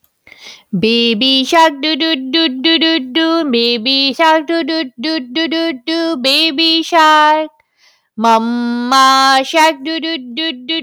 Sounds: Sigh